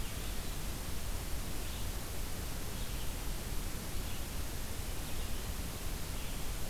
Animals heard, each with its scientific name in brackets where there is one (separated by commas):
Red-eyed Vireo (Vireo olivaceus)